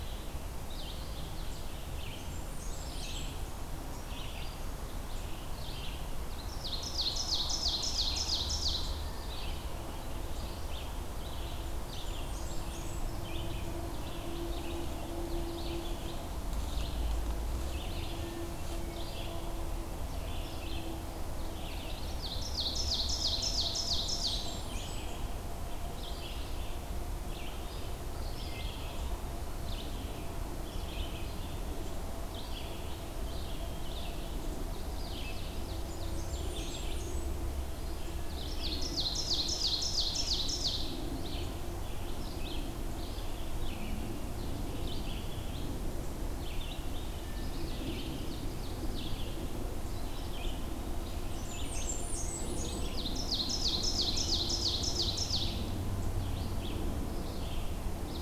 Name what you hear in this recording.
Red-eyed Vireo, Blackburnian Warbler, Black-throated Green Warbler, Ovenbird